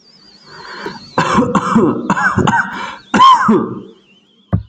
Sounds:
Cough